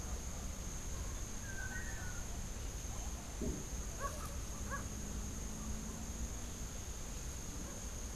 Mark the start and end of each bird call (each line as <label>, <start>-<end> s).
Great Kiskadee (Pitangus sulphuratus), 1.4-2.2 s
Great Kiskadee (Pitangus sulphuratus), 3.8-4.9 s